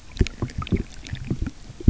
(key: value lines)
label: geophony, waves
recorder: SoundTrap 300